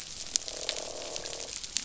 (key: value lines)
label: biophony, croak
recorder: SoundTrap 500